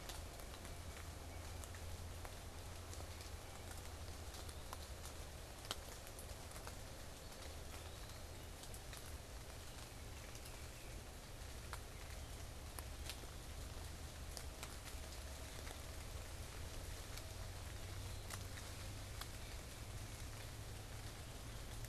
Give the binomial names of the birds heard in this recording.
unidentified bird, Contopus virens, Baeolophus bicolor